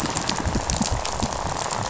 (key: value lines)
label: biophony, rattle
recorder: SoundTrap 500